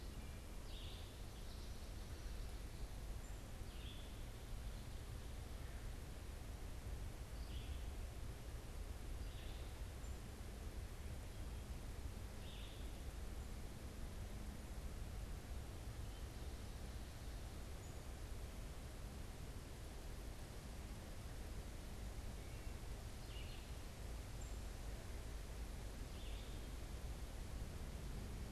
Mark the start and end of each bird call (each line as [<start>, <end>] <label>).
[0.00, 2.33] American Goldfinch (Spinus tristis)
[0.00, 24.93] unidentified bird
[0.00, 28.51] Red-eyed Vireo (Vireo olivaceus)